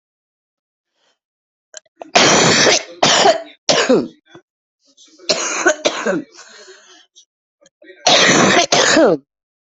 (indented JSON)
{
  "expert_labels": [
    {
      "quality": "ok",
      "cough_type": "wet",
      "dyspnea": false,
      "wheezing": false,
      "stridor": false,
      "choking": false,
      "congestion": false,
      "nothing": false,
      "diagnosis": "lower respiratory tract infection",
      "severity": "severe"
    }
  ],
  "age": 40,
  "gender": "female",
  "respiratory_condition": true,
  "fever_muscle_pain": false,
  "status": "symptomatic"
}